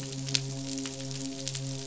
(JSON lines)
{"label": "biophony, midshipman", "recorder": "SoundTrap 500"}